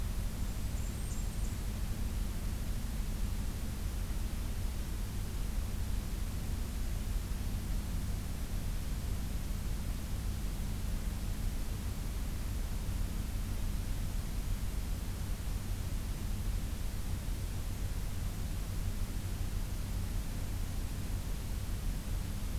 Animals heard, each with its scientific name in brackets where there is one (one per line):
Blackburnian Warbler (Setophaga fusca)